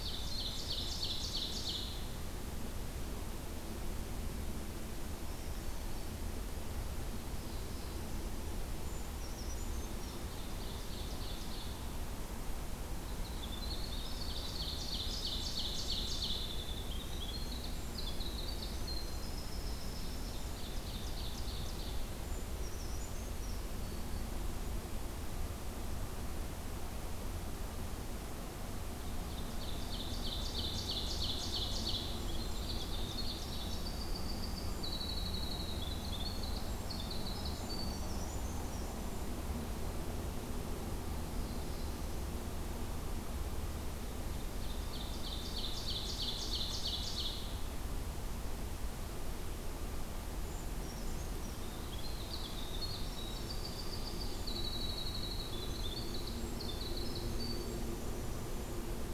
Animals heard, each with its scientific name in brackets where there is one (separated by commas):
Black-throated Blue Warbler (Setophaga caerulescens), Winter Wren (Troglodytes hiemalis), Brown Creeper (Certhia americana), Ovenbird (Seiurus aurocapilla)